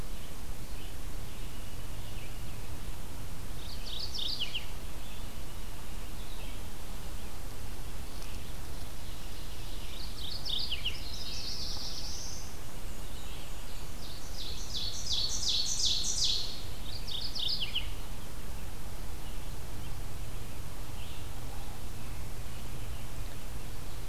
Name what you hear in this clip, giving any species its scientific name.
Geothlypis philadelphia, Seiurus aurocapilla, Setophaga caerulescens, Mniotilta varia